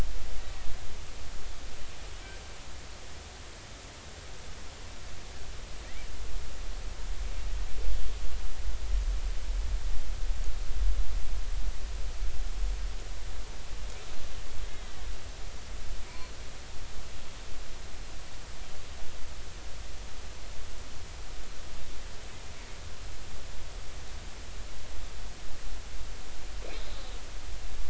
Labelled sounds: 14.7	15.0	killer whale, northern resident, A clan, call N03, 1.9 to 2.1 kHz

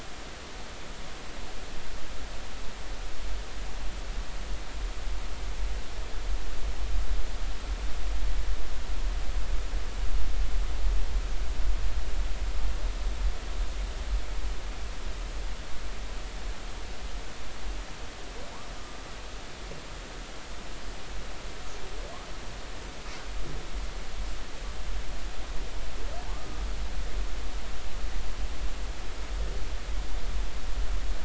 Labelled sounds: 26.3	26.6	humpback whale, 1.1 to 1.3 kHz

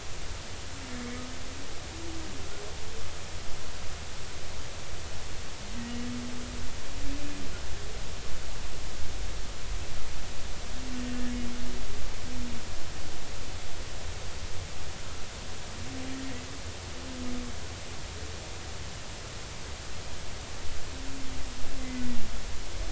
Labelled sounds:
21.8	22.1	humpback whale, 2.0 to 2.1 kHz

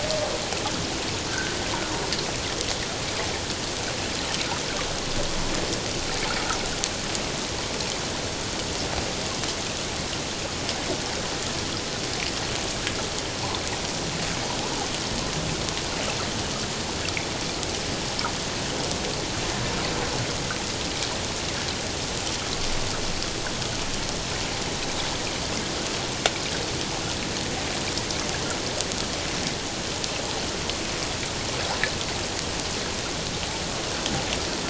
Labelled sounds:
1.3	1.6	humpback whale, 1.3 to 1.6 kHz

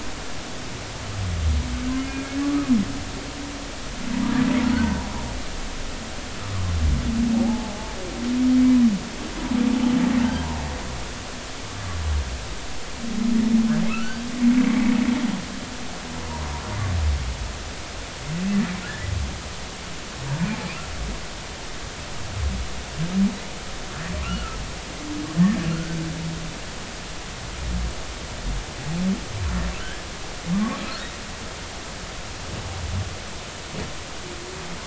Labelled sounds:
1.9	2.2	humpback whale, 2.0 to 2.2 kHz
7.4	8.0	humpback whale, 0.80 to 0.96 kHz
13.9	14.2	humpback whale, 1.2 to 1.6 kHz
24.2	24.6	humpback whale, 1.2 to 1.5 kHz
25.7	26.0	humpback whale, 1.3 to 1.6 kHz
29.8	30.9	humpback whale, 1.0 to 1.8 kHz

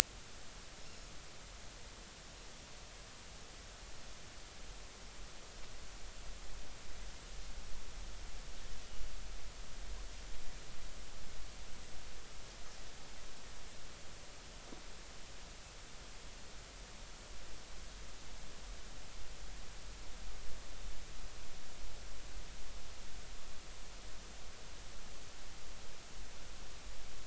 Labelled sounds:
0.8	1.1	Pacific white-sided dolphin, 5.3 to 5.5 kHz

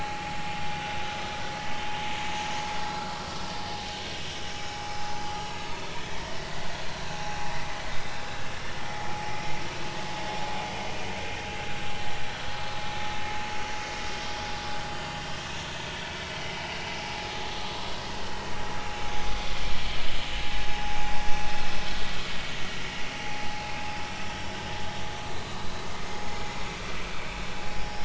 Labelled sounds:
0.7	2.0	vessel noise, 1.4 to 3.2 kHz
2.9	3.1	vessel noise, 1.3 to 1.4 kHz
4.6	4.9	vessel noise, 5.2 to 5.4 kHz
6.0	6.3	vessel noise, 1.7 to 2.0 kHz
9.1	9.4	vessel noise, 0.80 to 0.90 kHz
15.1	15.4	vessel noise, 3.0 to 3.2 kHz
15.9	16.2	vessel noise, 2.2 to 2.4 kHz
24.2	24.6	vessel noise, 5.5 to 5.7 kHz
25.2	25.6	vessel noise, 3.8 to 4.2 kHz
27.1	27.4	vessel noise, 2.2 to 2.6 kHz

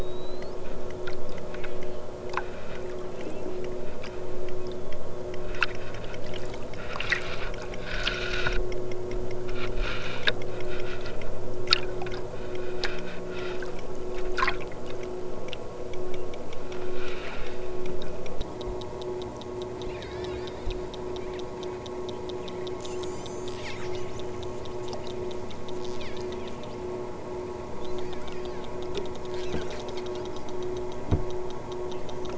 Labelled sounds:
19.8	20.4	killer whale, southern Alaska resident, 1.4 to 5.6 kHz
22.7	23.9	killer whale, southern Alaska resident, 2.5 to 8.0 kHz
25.8	26.5	killer whale, southern Alaska resident, 1.4 to 7.0 kHz
27.8	28.6	killer whale, southern Alaska resident, 2.7 to 8.0 kHz

